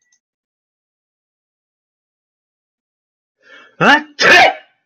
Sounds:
Sneeze